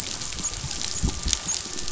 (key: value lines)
label: biophony, dolphin
recorder: SoundTrap 500